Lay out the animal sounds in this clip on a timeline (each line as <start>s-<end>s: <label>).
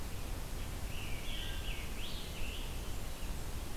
0.7s-3.1s: Scarlet Tanager (Piranga olivacea)
2.6s-3.6s: Blackburnian Warbler (Setophaga fusca)